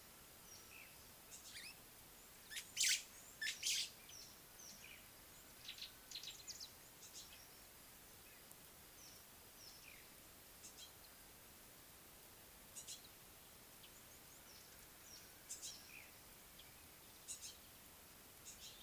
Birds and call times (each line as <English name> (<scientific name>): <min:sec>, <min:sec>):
White-browed Sparrow-Weaver (Plocepasser mahali): 0:02.8
Gray-backed Camaroptera (Camaroptera brevicaudata): 0:05.8
Yellow-spotted Bush Sparrow (Gymnoris pyrgita): 0:12.9, 0:17.4